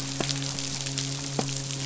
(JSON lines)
{"label": "biophony, midshipman", "recorder": "SoundTrap 500"}